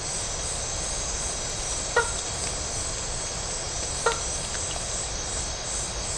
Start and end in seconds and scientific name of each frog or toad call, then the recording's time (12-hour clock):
1.7	2.4	Boana faber
3.8	4.5	Boana faber
11:00pm